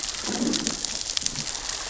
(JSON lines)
{"label": "biophony, growl", "recorder": "SoundTrap 600 or HydroMoth"}